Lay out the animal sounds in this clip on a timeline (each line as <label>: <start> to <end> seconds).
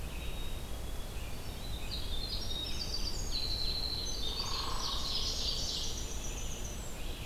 Red-eyed Vireo (Vireo olivaceus): 0.0 to 7.3 seconds
Black-capped Chickadee (Poecile atricapillus): 0.0 to 1.3 seconds
Winter Wren (Troglodytes hiemalis): 0.9 to 7.2 seconds
Ovenbird (Seiurus aurocapilla): 3.5 to 6.2 seconds
Hairy Woodpecker (Dryobates villosus): 4.2 to 5.5 seconds